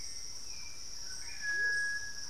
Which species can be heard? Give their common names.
Amazonian Motmot, Black-faced Antthrush, Cinereous Tinamou, Hauxwell's Thrush, White-throated Toucan, Thrush-like Wren